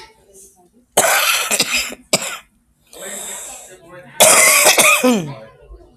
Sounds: Cough